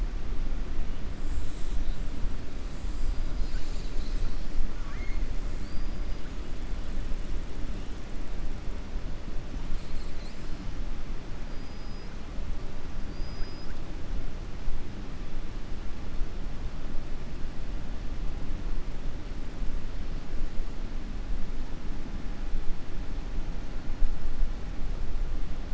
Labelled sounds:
4.7	5.2	killer whale, southern resident, 1.1 to 3.2 kHz
9.6	10.4	killer whale, southern resident, 3.3 to 5.9 kHz
13.0	13.7	killer whale, southern resident, 4.6 to 5.9 kHz

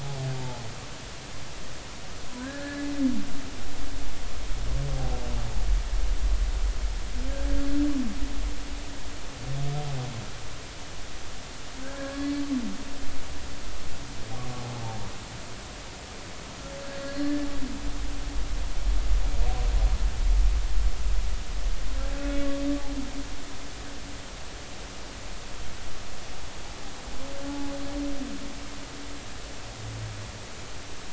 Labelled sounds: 0.4	0.6	humpback whale, 0.80 to 0.93 kHz
2.4	2.9	humpback whale, 1.4 to 2.1 kHz
7.3	7.6	humpback whale, 1.5 to 1.7 kHz
12.0	12.4	humpback whale, 1.1 to 4.6 kHz
16.9	17.5	humpback whale, 1.6 to 4.6 kHz
23.2	23.4	humpback whale, 2.5 to 2.6 kHz
27.5	27.7	humpback whale, 0.83 to 0.90 kHz

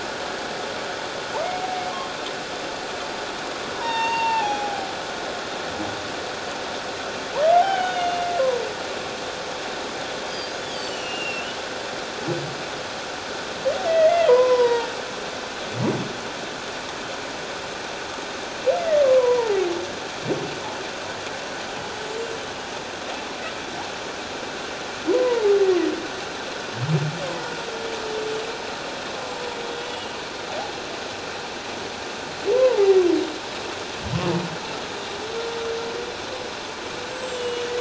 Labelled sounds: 3.8	4.9	humpback whale, 0.78 to 7.5 kHz
7.5	8.3	humpback whale, 0.78 to 3.7 kHz
10.3	11.5	humpback whale, 2.5 to 7.7 kHz
13.9	14.9	humpback whale, 0.88 to 5.0 kHz
19.0	19.6	humpback whale, 0.81 to 1.2 kHz
25.1	25.5	humpback whale, 0.81 to 1.1 kHz
29.8	30.1	humpback whale, 2.8 to 3.0 kHz
32.5	33.0	humpback whale, 0.78 to 1.1 kHz
37.1	37.7	humpback whale, 2.8 to 7.8 kHz

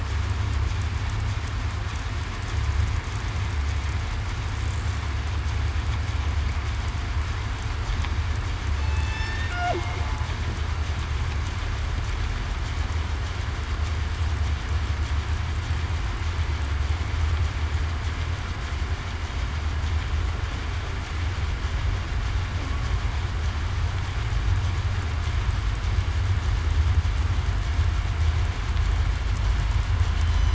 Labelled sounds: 8.8	9.4	killer whale, southern resident, 2.6 to 5.4 kHz

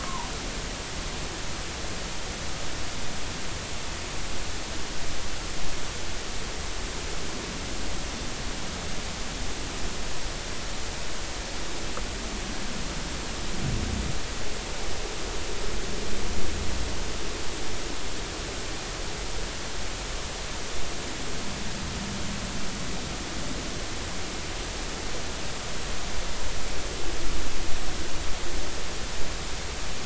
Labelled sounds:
0.0	0.3	humpback whale, 0.80 to 1.1 kHz

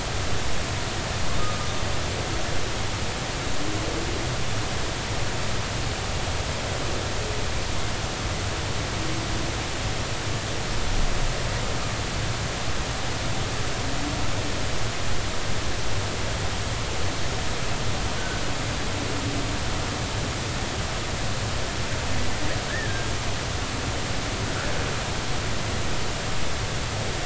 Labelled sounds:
22.7	23.1	humpback whale, 1.5 to 1.9 kHz

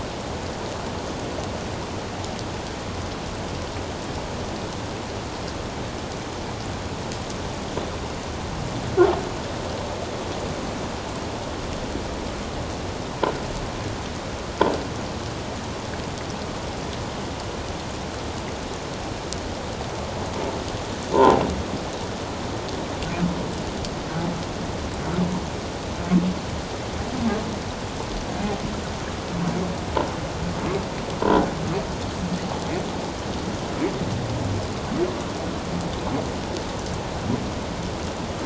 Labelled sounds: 21.1	21.4	croaking sound likely from a nearby submerged object, 0.78 to 1.1 kHz

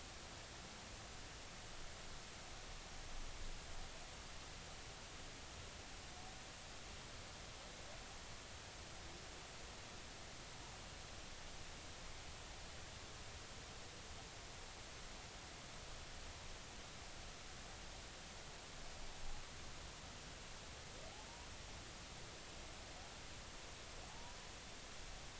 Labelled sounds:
24.1	24.4	humpback whale, 0.80 to 1.0 kHz

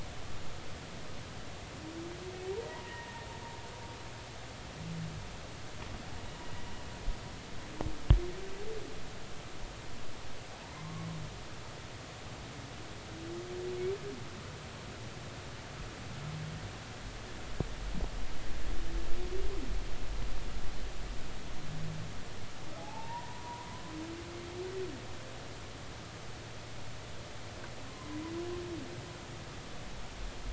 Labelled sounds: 2.5	3.3	humpback whale, 0.86 to 2.0 kHz
10.8	11.1	humpback whale, 0.96 to 1.2 kHz
22.8	23.7	humpback whale, 0.80 to 1.1 kHz
27.9	28.2	humpback whale, 0.96 to 1.1 kHz

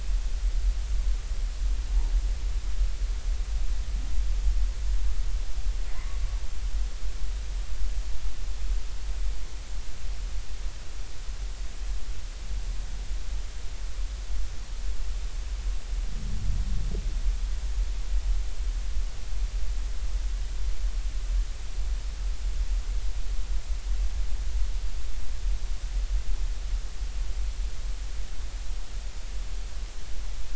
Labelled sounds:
5.9	6.2	humpback whale, 0.99 to 1.2 kHz

